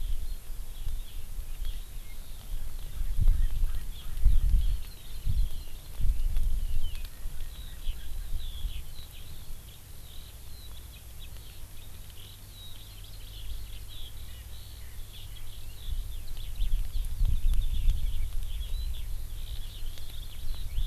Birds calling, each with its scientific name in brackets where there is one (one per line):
Eurasian Skylark (Alauda arvensis)
Hawaii Amakihi (Chlorodrepanis virens)
Erckel's Francolin (Pternistis erckelii)